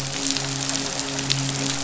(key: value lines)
label: biophony, midshipman
recorder: SoundTrap 500